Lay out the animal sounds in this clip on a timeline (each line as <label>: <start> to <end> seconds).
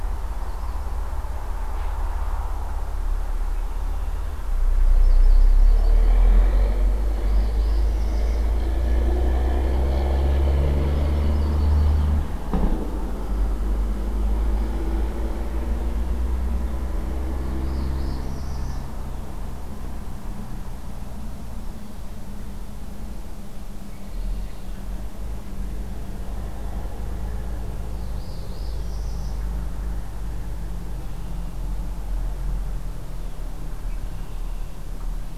Red-winged Blackbird (Agelaius phoeniceus): 3.5 to 4.7 seconds
Yellow-rumped Warbler (Setophaga coronata): 4.7 to 6.1 seconds
Northern Parula (Setophaga americana): 7.0 to 8.5 seconds
Yellow-rumped Warbler (Setophaga coronata): 10.6 to 12.0 seconds
Northern Parula (Setophaga americana): 17.4 to 19.0 seconds
Red-winged Blackbird (Agelaius phoeniceus): 23.8 to 24.9 seconds
Northern Parula (Setophaga americana): 27.8 to 29.5 seconds
Red-winged Blackbird (Agelaius phoeniceus): 33.7 to 34.9 seconds